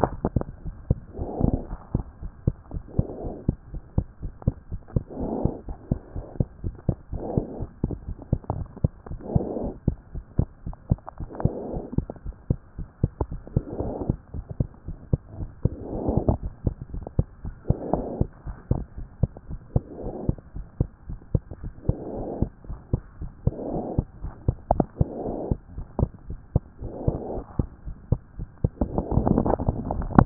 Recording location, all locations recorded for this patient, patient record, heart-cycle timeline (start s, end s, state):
pulmonary valve (PV)
aortic valve (AV)+pulmonary valve (PV)+tricuspid valve (TV)+mitral valve (MV)
#Age: Child
#Sex: Male
#Height: 92.0 cm
#Weight: 14.9 kg
#Pregnancy status: False
#Murmur: Absent
#Murmur locations: nan
#Most audible location: nan
#Systolic murmur timing: nan
#Systolic murmur shape: nan
#Systolic murmur grading: nan
#Systolic murmur pitch: nan
#Systolic murmur quality: nan
#Diastolic murmur timing: nan
#Diastolic murmur shape: nan
#Diastolic murmur grading: nan
#Diastolic murmur pitch: nan
#Diastolic murmur quality: nan
#Outcome: Normal
#Campaign: 2014 screening campaign
0.00	1.68	unannotated
1.68	1.78	S1
1.78	1.95	systole
1.95	2.03	S2
2.03	2.24	diastole
2.24	2.32	S1
2.32	2.46	systole
2.46	2.54	S2
2.54	2.72	diastole
2.72	2.82	S1
2.82	2.98	systole
2.98	3.06	S2
3.06	3.22	diastole
3.22	3.34	S1
3.34	3.48	systole
3.48	3.57	S2
3.57	3.72	diastole
3.72	3.82	S1
3.82	3.97	systole
3.97	4.06	S2
4.06	4.24	diastole
4.24	4.32	S1
4.32	4.47	systole
4.47	4.55	S2
4.55	4.72	diastole
4.72	4.80	S1
4.80	4.96	systole
4.96	5.04	S2
5.04	5.20	diastole
5.20	5.29	S1
5.29	5.45	systole
5.45	5.53	S2
5.53	5.68	diastole
5.68	5.76	S1
5.76	5.91	systole
5.91	6.00	S2
6.00	6.16	diastole
6.16	6.26	S1
6.26	6.40	systole
6.40	6.48	S2
6.48	6.64	diastole
6.64	6.76	S1
6.76	6.89	systole
6.89	6.97	S2
6.97	7.12	diastole
7.12	7.22	S1
7.22	7.38	systole
7.38	7.46	S2
7.46	7.60	diastole
7.60	7.70	S1
7.70	7.84	systole
7.84	7.92	S2
7.92	8.06	diastole
8.06	30.26	unannotated